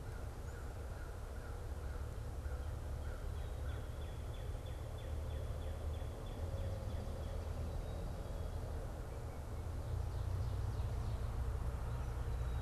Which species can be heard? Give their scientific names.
Corvus brachyrhynchos, Cardinalis cardinalis